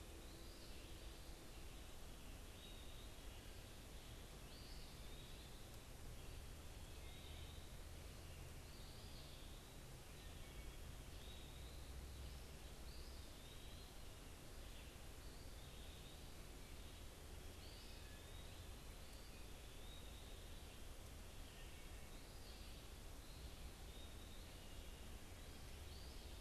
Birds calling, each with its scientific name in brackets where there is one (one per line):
Eastern Wood-Pewee (Contopus virens)
Red-eyed Vireo (Vireo olivaceus)
American Robin (Turdus migratorius)